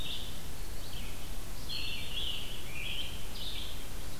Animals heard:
Scarlet Tanager (Piranga olivacea)
Red-eyed Vireo (Vireo olivaceus)

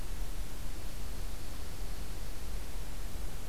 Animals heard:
Dark-eyed Junco (Junco hyemalis)

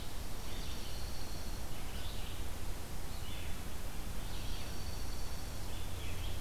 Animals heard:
Red-eyed Vireo (Vireo olivaceus)
Dark-eyed Junco (Junco hyemalis)

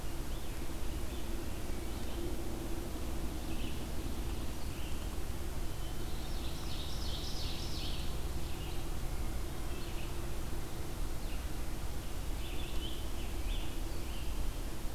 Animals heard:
Wood Thrush (Hylocichla mustelina)
Eastern Wood-Pewee (Contopus virens)
American Robin (Turdus migratorius)
Red-eyed Vireo (Vireo olivaceus)
Ovenbird (Seiurus aurocapilla)

